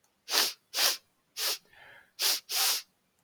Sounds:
Sniff